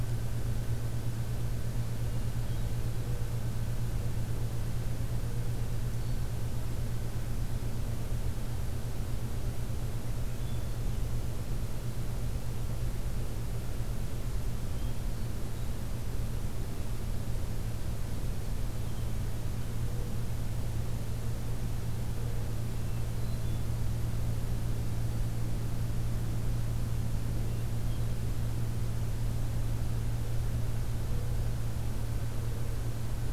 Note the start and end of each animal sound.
[10.11, 11.03] Hermit Thrush (Catharus guttatus)
[14.64, 15.55] Hermit Thrush (Catharus guttatus)
[22.72, 23.67] Hermit Thrush (Catharus guttatus)

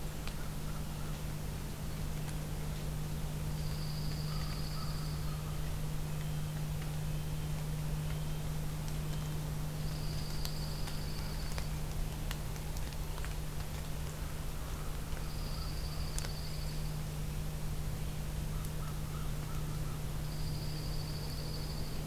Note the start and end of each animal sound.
[0.23, 1.18] American Crow (Corvus brachyrhynchos)
[3.44, 5.31] Dark-eyed Junco (Junco hyemalis)
[4.19, 5.65] American Crow (Corvus brachyrhynchos)
[5.12, 9.46] Red-breasted Nuthatch (Sitta canadensis)
[9.70, 11.63] Dark-eyed Junco (Junco hyemalis)
[14.04, 16.22] American Crow (Corvus brachyrhynchos)
[15.12, 16.94] Dark-eyed Junco (Junco hyemalis)
[18.43, 20.04] American Crow (Corvus brachyrhynchos)
[20.17, 22.07] Dark-eyed Junco (Junco hyemalis)

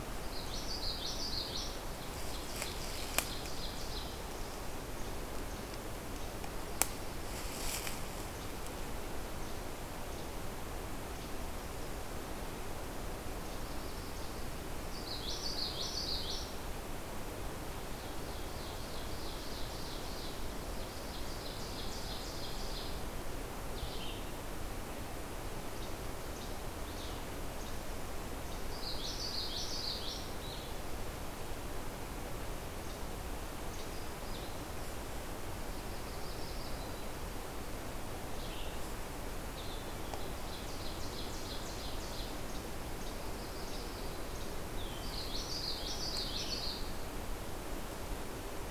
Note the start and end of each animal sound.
[0.18, 1.82] Common Yellowthroat (Geothlypis trichas)
[1.93, 4.15] Ovenbird (Seiurus aurocapilla)
[14.74, 16.61] Common Yellowthroat (Geothlypis trichas)
[17.78, 22.98] Ovenbird (Seiurus aurocapilla)
[23.57, 27.50] Red-eyed Vireo (Vireo olivaceus)
[28.64, 30.34] Common Yellowthroat (Geothlypis trichas)
[30.26, 48.70] Red-eyed Vireo (Vireo olivaceus)
[32.60, 33.91] Least Flycatcher (Empidonax minimus)
[35.36, 37.16] Yellow-rumped Warbler (Setophaga coronata)
[40.10, 42.36] Ovenbird (Seiurus aurocapilla)
[43.03, 44.33] Yellow-rumped Warbler (Setophaga coronata)
[44.98, 46.84] Common Yellowthroat (Geothlypis trichas)

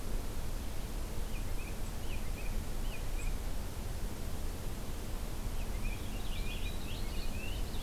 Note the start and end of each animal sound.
[1.07, 3.42] American Robin (Turdus migratorius)
[5.32, 7.83] Purple Finch (Haemorhous purpureus)

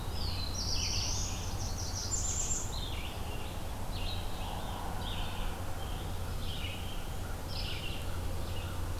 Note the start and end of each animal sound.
[0.00, 1.54] Black-throated Blue Warbler (Setophaga caerulescens)
[0.00, 9.00] Red-eyed Vireo (Vireo olivaceus)
[1.28, 2.89] Blackburnian Warbler (Setophaga fusca)

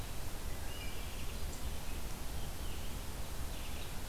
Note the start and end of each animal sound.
[0.00, 4.08] Red-eyed Vireo (Vireo olivaceus)
[0.52, 1.23] Hermit Thrush (Catharus guttatus)

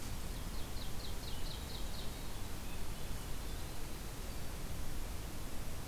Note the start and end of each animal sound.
[0.00, 2.13] Ovenbird (Seiurus aurocapilla)
[0.73, 4.76] Winter Wren (Troglodytes hiemalis)
[2.11, 3.67] Swainson's Thrush (Catharus ustulatus)

